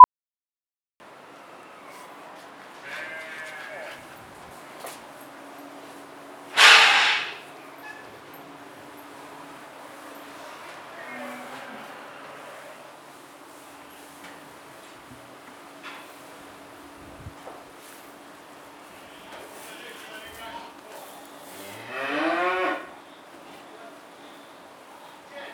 Are the people singing?
no